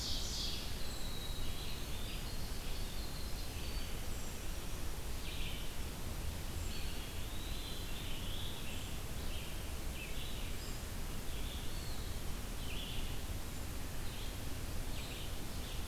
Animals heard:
Red-eyed Vireo (Vireo olivaceus)
Winter Wren (Troglodytes hiemalis)
Ovenbird (Seiurus aurocapilla)
Eastern Wood-Pewee (Contopus virens)
Black-throated Blue Warbler (Setophaga caerulescens)

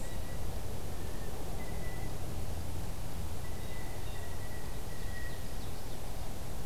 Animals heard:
Ovenbird (Seiurus aurocapilla)
Blue Jay (Cyanocitta cristata)

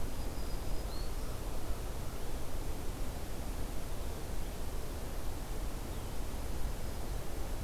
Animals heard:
Black-throated Green Warbler (Setophaga virens)

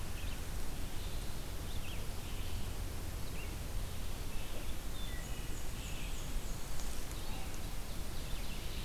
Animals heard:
Wood Thrush (Hylocichla mustelina)
Black-and-white Warbler (Mniotilta varia)
Red-eyed Vireo (Vireo olivaceus)

